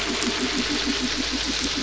{"label": "anthrophony, boat engine", "recorder": "SoundTrap 500"}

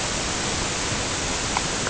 {"label": "ambient", "recorder": "HydroMoth"}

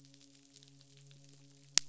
{"label": "biophony, midshipman", "recorder": "SoundTrap 500"}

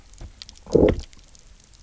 {"label": "biophony, low growl", "recorder": "SoundTrap 300"}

